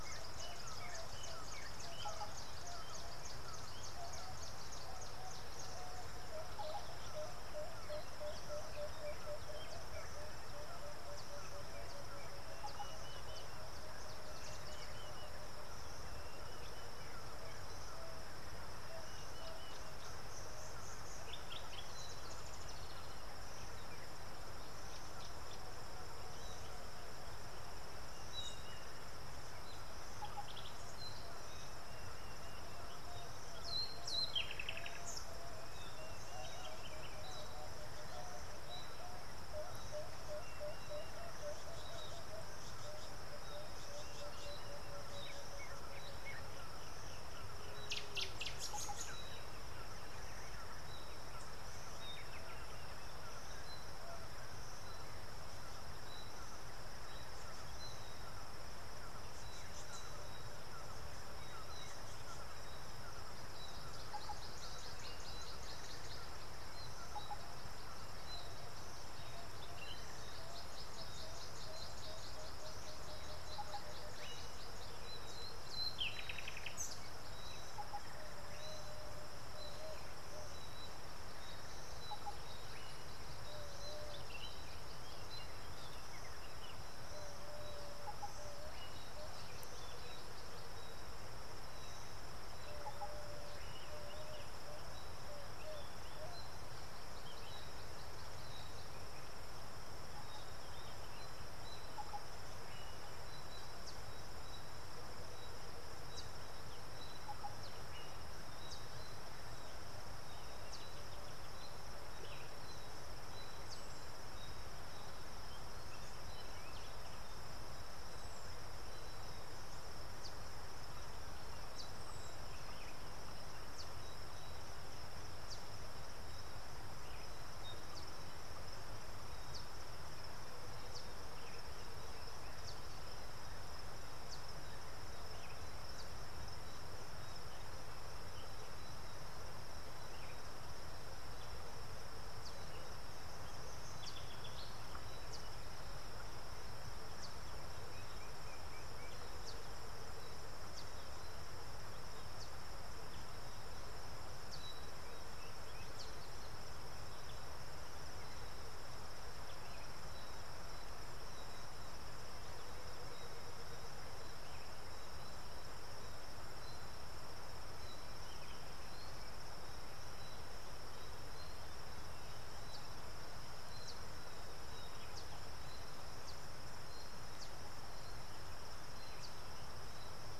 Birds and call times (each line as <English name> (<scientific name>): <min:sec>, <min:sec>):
Emerald-spotted Wood-Dove (Turtur chalcospilos): 0:07.2
Dideric Cuckoo (Chrysococcyx caprius): 0:13.0
Tawny-flanked Prinia (Prinia subflava): 0:43.9